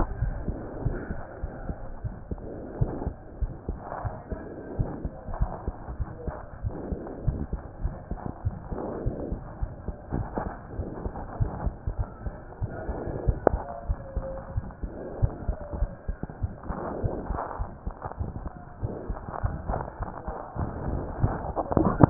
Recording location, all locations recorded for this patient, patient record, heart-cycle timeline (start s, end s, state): aortic valve (AV)
aortic valve (AV)+pulmonary valve (PV)+tricuspid valve (TV)+mitral valve (MV)
#Age: Child
#Sex: Male
#Height: 115.0 cm
#Weight: 23.1 kg
#Pregnancy status: False
#Murmur: Present
#Murmur locations: aortic valve (AV)+tricuspid valve (TV)
#Most audible location: tricuspid valve (TV)
#Systolic murmur timing: Early-systolic
#Systolic murmur shape: Decrescendo
#Systolic murmur grading: I/VI
#Systolic murmur pitch: Low
#Systolic murmur quality: Harsh
#Diastolic murmur timing: nan
#Diastolic murmur shape: nan
#Diastolic murmur grading: nan
#Diastolic murmur pitch: nan
#Diastolic murmur quality: nan
#Outcome: Normal
#Campaign: 2015 screening campaign
0.00	0.16	unannotated
0.16	0.34	S1
0.34	0.46	systole
0.46	0.60	S2
0.60	0.84	diastole
0.84	0.98	S1
0.98	1.08	systole
1.08	1.18	S2
1.18	1.42	diastole
1.42	1.54	S1
1.54	1.68	systole
1.68	1.78	S2
1.78	2.04	diastole
2.04	2.16	S1
2.16	2.30	systole
2.30	2.42	S2
2.42	2.74	diastole
2.74	2.92	S1
2.92	3.02	systole
3.02	3.14	S2
3.14	3.38	diastole
3.38	3.52	S1
3.52	3.68	systole
3.68	3.80	S2
3.80	4.04	diastole
4.04	4.16	S1
4.16	4.32	systole
4.32	4.46	S2
4.46	4.78	diastole
4.78	4.92	S1
4.92	5.02	systole
5.02	5.14	S2
5.14	5.38	diastole
5.38	5.52	S1
5.52	5.64	systole
5.64	5.74	S2
5.74	5.98	diastole
5.98	6.08	S1
6.08	6.24	systole
6.24	6.34	S2
6.34	6.62	diastole
6.62	6.74	S1
6.74	6.90	systole
6.90	7.00	S2
7.00	7.26	diastole
7.26	7.42	S1
7.42	7.52	systole
7.52	7.62	S2
7.62	7.82	diastole
7.82	7.96	S1
7.96	8.08	systole
8.08	8.18	S2
8.18	8.44	diastole
8.44	8.58	S1
8.58	8.70	systole
8.70	8.76	S2
8.76	9.04	diastole
9.04	9.18	S1
9.18	9.30	systole
9.30	9.40	S2
9.40	9.60	diastole
9.60	9.74	S1
9.74	9.84	systole
9.84	9.94	S2
9.94	10.14	diastole
10.14	10.28	S1
10.28	10.42	systole
10.42	10.52	S2
10.52	10.76	diastole
10.76	10.86	S1
10.86	11.04	systole
11.04	11.14	S2
11.14	11.38	diastole
11.38	11.54	S1
11.54	11.64	systole
11.64	11.76	S2
11.76	11.98	diastole
11.98	12.08	S1
12.08	12.22	systole
12.22	12.34	S2
12.34	12.62	diastole
12.62	12.72	S1
12.72	12.86	systole
12.86	12.98	S2
12.98	13.22	diastole
13.22	13.40	S1
13.40	13.51	systole
13.51	13.64	S2
13.64	13.86	diastole
13.86	14.00	S1
14.00	14.14	systole
14.14	14.28	S2
14.28	14.54	diastole
14.54	14.68	S1
14.68	14.80	systole
14.80	14.92	S2
14.92	15.20	diastole
15.20	15.36	S1
15.36	15.46	systole
15.46	15.56	S2
15.56	15.78	diastole
15.78	15.92	S1
15.92	16.07	systole
16.07	16.16	S2
16.16	16.40	diastole
16.40	16.54	S1
16.54	16.66	systole
16.66	16.78	S2
16.78	17.02	diastole
17.02	17.14	S1
17.14	17.28	systole
17.28	17.40	S2
17.40	17.58	diastole
17.58	17.70	S1
17.70	17.83	systole
17.83	17.94	S2
17.94	18.18	diastole
18.18	18.32	S1
18.32	18.43	systole
18.43	18.52	S2
18.52	18.82	diastole
18.82	18.94	S1
18.94	19.08	systole
19.08	19.18	S2
19.18	19.42	diastole
19.42	19.58	S1
19.58	22.10	unannotated